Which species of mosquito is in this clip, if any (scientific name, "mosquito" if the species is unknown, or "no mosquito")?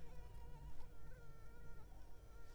Anopheles arabiensis